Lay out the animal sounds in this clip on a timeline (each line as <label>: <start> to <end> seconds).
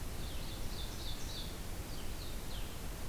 Ovenbird (Seiurus aurocapilla): 0.0 to 1.6 seconds
Blue-headed Vireo (Vireo solitarius): 0.1 to 3.1 seconds